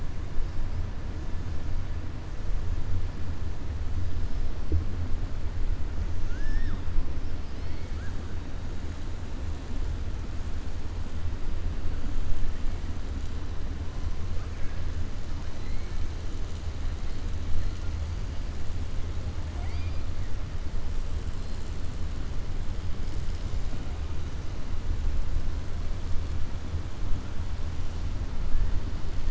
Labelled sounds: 6.2	6.8	killer whale, southern resident, 1.1 to 6.7 kHz
19.5	20.0	killer whale, southern resident, 0.70 to 4.9 kHz

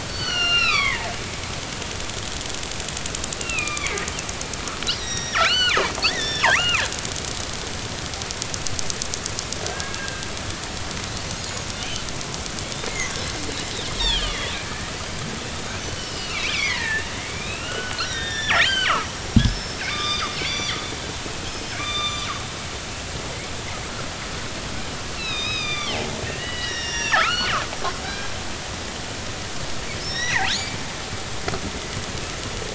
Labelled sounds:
0.0	1.2	killer whale, northern resident, G clan, 0.83 to 6.0 kHz
3.4	4.0	killer whale, northern resident, G clan, 1.1 to 3.6 kHz
4.9	5.8	killer whale, northern resident, G clan, 0.99 to 5.9 kHz
6.1	6.9	killer whale, northern resident, G clan, 0.86 to 5.4 kHz
9.7	10.3	killer whale, northern resident, G clan, 1.5 to 2.8 kHz
11.3	12.0	killer whale, northern resident, G clan, 2.8 to 6.9 kHz
14.0	19.1	killer whale, northern resident, G clan, 0.83 to 5.7 kHz
19.5	20.8	killer whale, northern resident, G clan, 1.1 to 7.1 kHz
21.2	22.2	killer whale, northern resident, G clan, 1.1 to 5.3 kHz
22.8	23.3	killer whale, northern resident, G clan, 3.3 to 6.1 kHz
25.2	27.5	killer whale, northern resident, G clan, 1.0 to 6.5 kHz
28.0	28.3	killer whale, northern resident, G clan, 1.5 to 1.7 kHz
30.0	30.5	killer whale, northern resident, G clan, 1.5 to 5.9 kHz

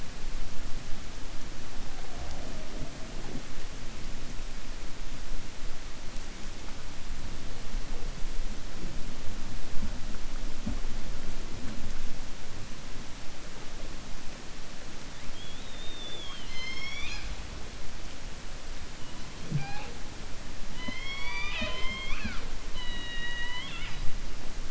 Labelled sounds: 15.3	17.3	killer whale, 1.0 to 6.7 kHz
20.7	24.0	killer whale, 0.21 to 5.9 kHz

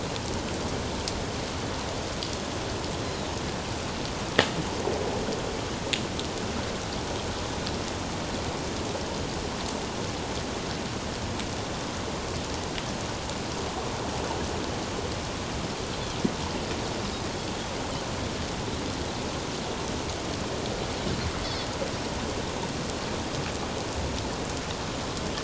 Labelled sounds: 3.0	3.3	Pacific white-sided dolphin, 3.6 to 4.2 kHz

